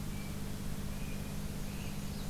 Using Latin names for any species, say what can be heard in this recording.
Cyanocitta cristata, Leiothlypis ruficapilla